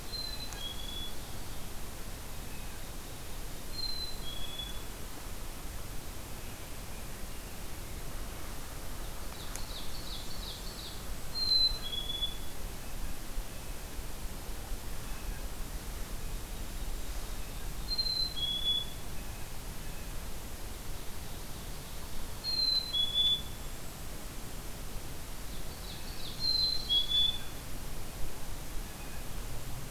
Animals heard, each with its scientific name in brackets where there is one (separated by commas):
Ovenbird (Seiurus aurocapilla), Yellow-rumped Warbler (Setophaga coronata), Golden-crowned Kinglet (Regulus satrapa), Blue Jay (Cyanocitta cristata), Black-capped Chickadee (Poecile atricapillus)